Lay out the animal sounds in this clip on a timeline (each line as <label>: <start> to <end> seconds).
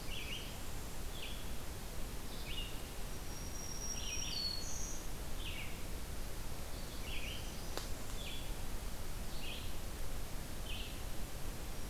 Northern Parula (Setophaga americana): 0.0 to 1.0 seconds
Red-eyed Vireo (Vireo olivaceus): 0.0 to 11.9 seconds
Black-throated Green Warbler (Setophaga virens): 3.1 to 5.1 seconds
Northern Parula (Setophaga americana): 6.3 to 8.3 seconds